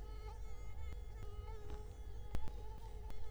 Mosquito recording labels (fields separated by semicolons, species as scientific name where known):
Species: Culex quinquefasciatus; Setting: cup